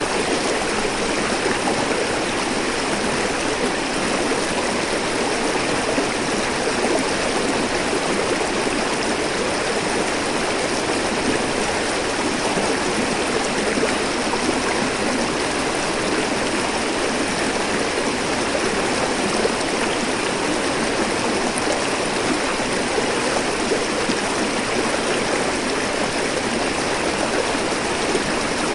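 Water is running. 0.0 - 28.7

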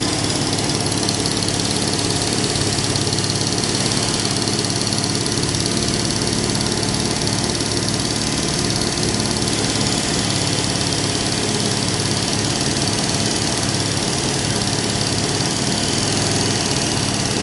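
A jackhammer strikes cement in a consistent, rhythmic pattern. 0.0 - 17.4

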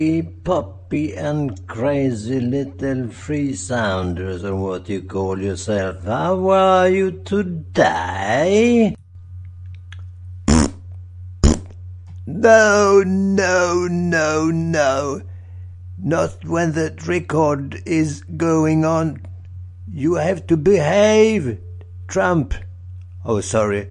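A man speaks in a deep, elongated voice. 0.0 - 9.1
A man makes short, loud farting noises with his mouth, with a break in between. 10.4 - 11.7
A man is speaking in a deep, elongated voice with short pauses. 12.3 - 23.9

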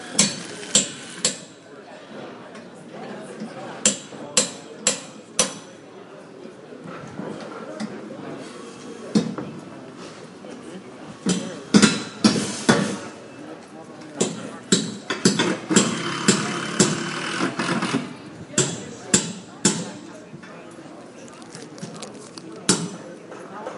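A hammer clatters repeatedly. 0.0 - 2.2
People are speaking simultaneously in the background. 0.0 - 23.8
A hammer clatters repeatedly nearby. 3.5 - 7.2
A hammer clatters once dully. 8.8 - 10.2
A hammer clatters repeatedly nearby. 11.4 - 20.5
A drill is operating steadily nearby. 15.9 - 18.7
A hammer strikes once nearby. 22.1 - 23.3

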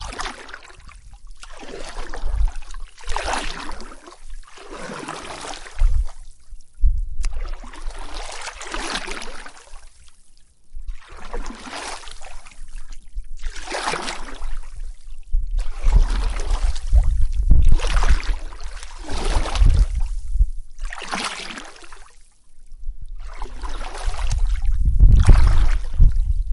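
Water splashes. 0.0 - 6.2
Water splashing. 7.8 - 9.7
Water splashes. 11.1 - 12.5
Water splashes. 13.3 - 14.9
Water splashes. 15.8 - 22.1
Water splashes. 23.4 - 26.5

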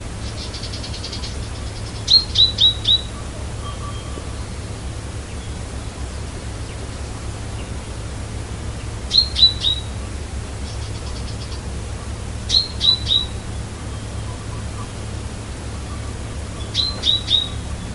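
Birds chirping quietly in a consistent pattern. 0.0 - 2.0
A bird sings repeatedly in a high-pitched, clear, and loud voice. 2.0 - 3.1
A bird sings repeatedly in a high-pitched, clear, and loud voice. 9.0 - 9.9
Wind blows outdoors with birds singing quietly in the background in an unsteady pattern. 9.8 - 10.7
Birds chirping quietly in a consistent pattern. 10.7 - 11.8
Wind blows outdoors in a steady pattern. 11.8 - 12.4
A bird sings repeatedly in a high-pitched, clear, and loud voice. 12.4 - 13.4
Wind blows outdoors with birds singing quietly in the background in an unsteady pattern. 13.4 - 16.7
A bird sings repeatedly in a high-pitched, clear, and loud voice. 16.7 - 17.6
Wind blows outdoors with birds singing quietly in the background in an unsteady pattern. 17.6 - 17.9

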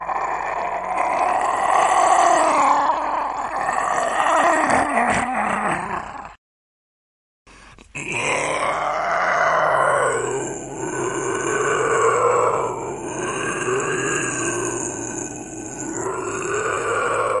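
A person making monster sounds. 0.0 - 6.4
A person making monster sounds. 7.4 - 17.4

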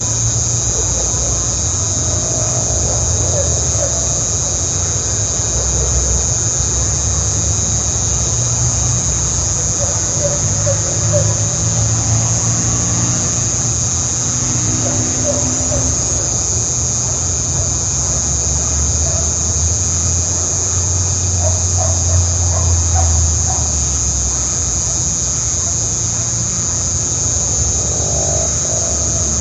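Crickets chirping constantly in a high pitch outside. 0.0 - 29.4
A vehicle is driving by faintly in the distance. 2.1 - 3.4
An owl hoots faintly twice in the distance. 3.4 - 4.1
An owl hoots muffled in the distance. 9.9 - 11.8
A motorcycle is driving in the distance. 11.0 - 16.6
A dog barks faintly three times in the distance. 14.6 - 16.0
A dog barks repeatedly in the distance. 21.3 - 23.9
A motorcycle is driving in the distance. 27.7 - 29.4

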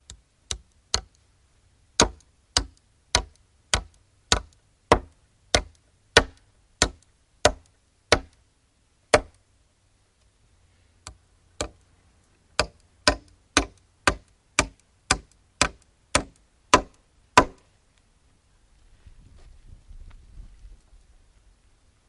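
A person hammers nails indoors with irregular striking patterns. 0.0 - 22.1

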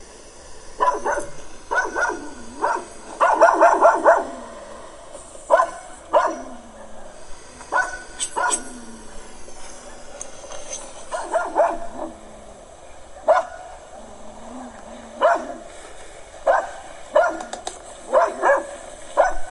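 A dog barks loudly and repeatedly, while another dog responds faintly in the distance with a slight echo. 0.8 - 19.5

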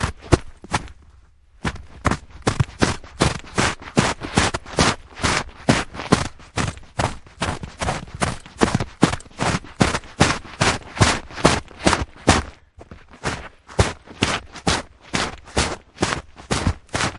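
Steady, rhythmic footsteps crunch softly in the snow as someone runs across the ground. 0.1 - 17.2

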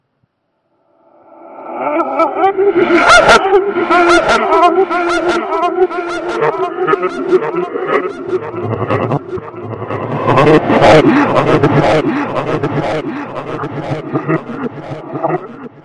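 A spooky, distorted voice laughing in reverse. 1.4 - 15.7

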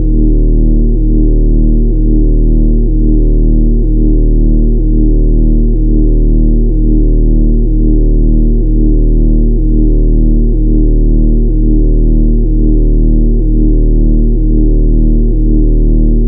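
A continuous low-pitched hum with a synthetic, modulating tone that fluctuates slowly, resembling a sci-fi energy weapon. 0.0 - 16.3

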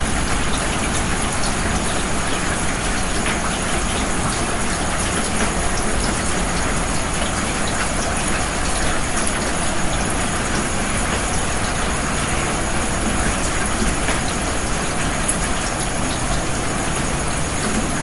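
Rain falling and water flowing. 0.0 - 18.0

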